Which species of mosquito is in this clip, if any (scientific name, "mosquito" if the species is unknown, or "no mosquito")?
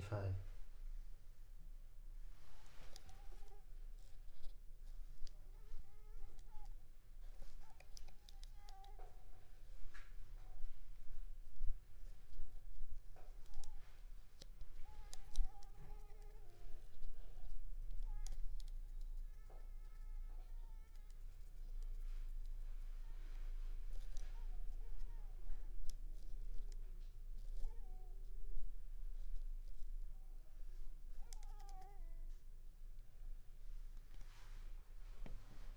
Culex pipiens complex